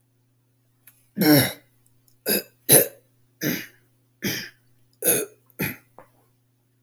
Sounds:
Throat clearing